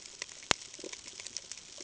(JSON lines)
{"label": "ambient", "recorder": "HydroMoth"}